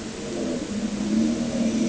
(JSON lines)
{"label": "anthrophony, boat engine", "recorder": "HydroMoth"}